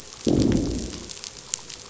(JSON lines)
{"label": "biophony, growl", "recorder": "SoundTrap 500"}